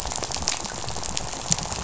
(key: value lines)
label: biophony, rattle
recorder: SoundTrap 500